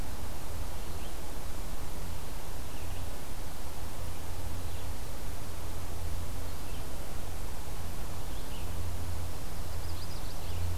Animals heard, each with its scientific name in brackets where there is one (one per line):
Red-eyed Vireo (Vireo olivaceus)
Magnolia Warbler (Setophaga magnolia)